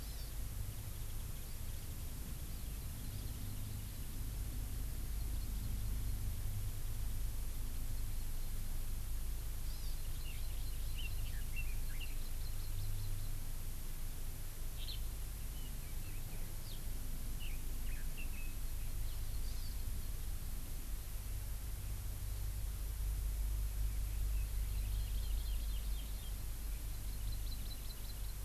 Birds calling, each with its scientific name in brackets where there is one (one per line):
Eurasian Skylark (Alauda arvensis)
Hawaii Amakihi (Chlorodrepanis virens)
Warbling White-eye (Zosterops japonicus)
Red-billed Leiothrix (Leiothrix lutea)